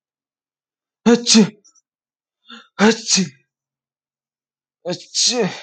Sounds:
Sneeze